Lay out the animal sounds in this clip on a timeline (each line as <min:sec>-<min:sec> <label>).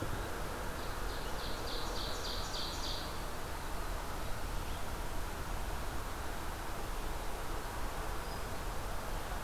0:00.0-0:03.2 Ovenbird (Seiurus aurocapilla)